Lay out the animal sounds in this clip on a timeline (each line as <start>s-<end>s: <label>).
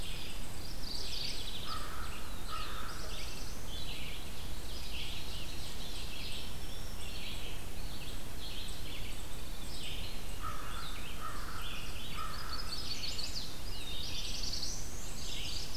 0.0s-15.8s: Red-eyed Vireo (Vireo olivaceus)
0.4s-1.7s: Mourning Warbler (Geothlypis philadelphia)
1.6s-3.1s: American Crow (Corvus brachyrhynchos)
2.1s-3.8s: Black-throated Blue Warbler (Setophaga caerulescens)
4.2s-6.3s: Ovenbird (Seiurus aurocapilla)
6.0s-7.5s: Black-throated Green Warbler (Setophaga virens)
8.8s-10.1s: Veery (Catharus fuscescens)
10.2s-12.9s: American Crow (Corvus brachyrhynchos)
12.2s-13.5s: Chestnut-sided Warbler (Setophaga pensylvanica)
13.5s-15.1s: Black-throated Blue Warbler (Setophaga caerulescens)
14.3s-15.7s: Black-and-white Warbler (Mniotilta varia)
15.1s-15.8s: Mourning Warbler (Geothlypis philadelphia)